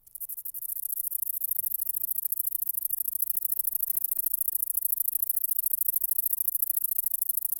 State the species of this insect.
Polysarcus denticauda